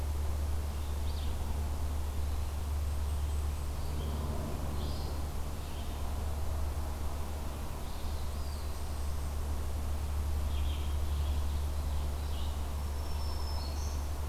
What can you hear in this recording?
Red-eyed Vireo, Ovenbird, Black-throated Green Warbler